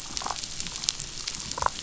{"label": "biophony, damselfish", "recorder": "SoundTrap 500"}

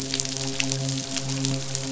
{"label": "biophony, midshipman", "recorder": "SoundTrap 500"}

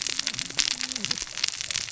{"label": "biophony, cascading saw", "recorder": "SoundTrap 600 or HydroMoth"}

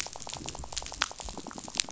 {"label": "biophony, rattle", "recorder": "SoundTrap 500"}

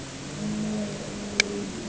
{"label": "anthrophony, boat engine", "recorder": "HydroMoth"}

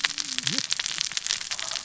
{"label": "biophony, cascading saw", "recorder": "SoundTrap 600 or HydroMoth"}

